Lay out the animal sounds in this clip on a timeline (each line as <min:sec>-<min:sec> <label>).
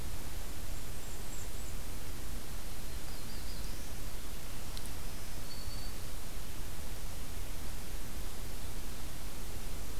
0:00.5-0:01.9 Blackburnian Warbler (Setophaga fusca)
0:02.6-0:04.0 Black-throated Blue Warbler (Setophaga caerulescens)
0:04.7-0:06.1 Black-throated Green Warbler (Setophaga virens)